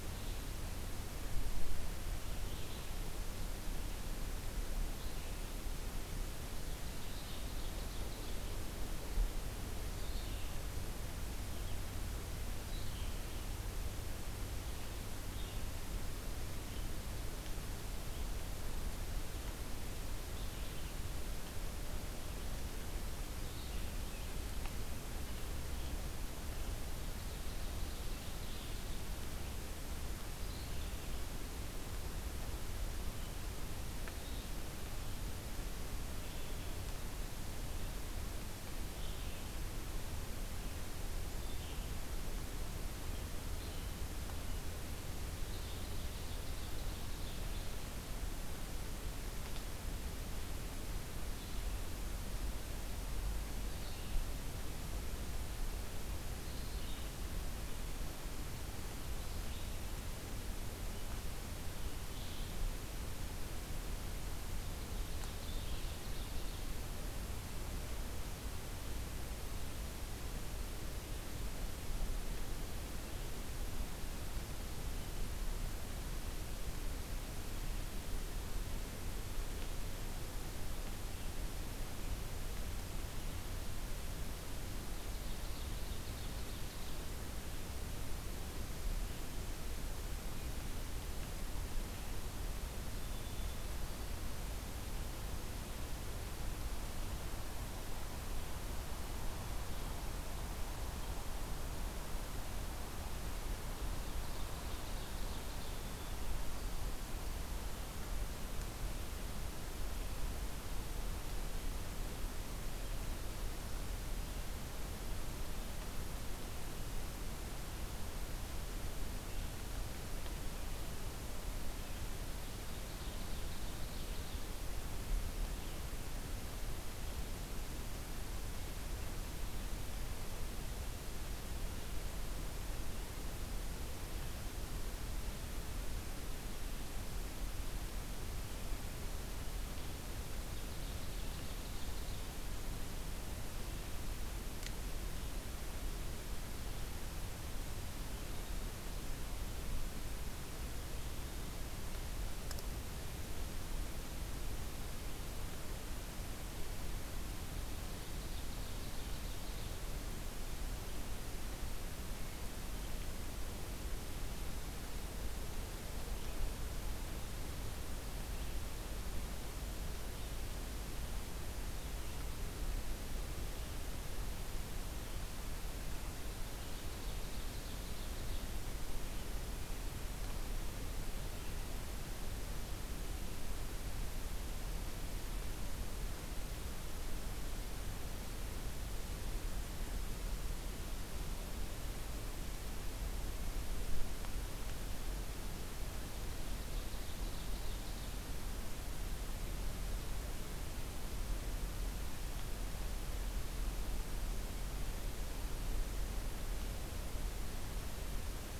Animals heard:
White-throated Sparrow (Zonotrichia albicollis), Red-eyed Vireo (Vireo olivaceus), Ovenbird (Seiurus aurocapilla)

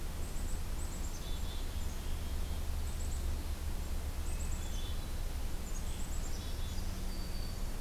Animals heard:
Black-throated Green Warbler (Setophaga virens), Black-capped Chickadee (Poecile atricapillus), Hermit Thrush (Catharus guttatus)

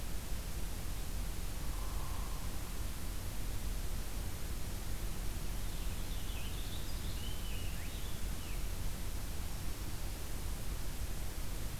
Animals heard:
Purple Finch (Haemorhous purpureus), Hairy Woodpecker (Dryobates villosus)

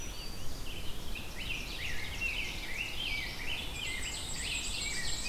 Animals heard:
Ovenbird (Seiurus aurocapilla), Rose-breasted Grosbeak (Pheucticus ludovicianus), Black-throated Green Warbler (Setophaga virens), Black-and-white Warbler (Mniotilta varia), Red-eyed Vireo (Vireo olivaceus)

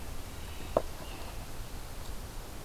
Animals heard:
American Robin (Turdus migratorius)

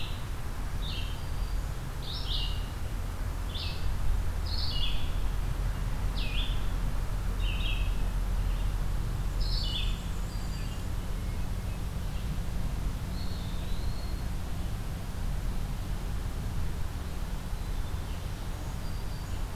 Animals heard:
Red-eyed Vireo (Vireo olivaceus), Eastern Wood-Pewee (Contopus virens), Black-and-white Warbler (Mniotilta varia), Hermit Thrush (Catharus guttatus), Black-throated Green Warbler (Setophaga virens)

